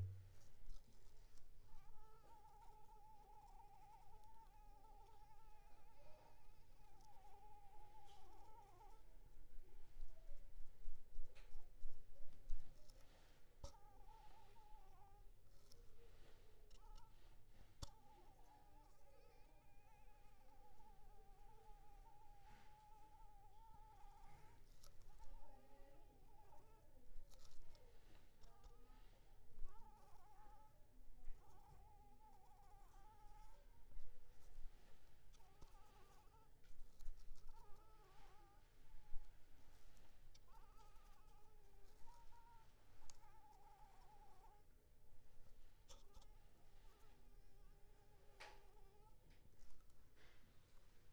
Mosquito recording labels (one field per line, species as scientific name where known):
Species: Anopheles arabiensis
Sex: female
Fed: unfed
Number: one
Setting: cup